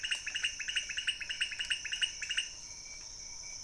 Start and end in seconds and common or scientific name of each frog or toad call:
0.0	2.5	pointedbelly frog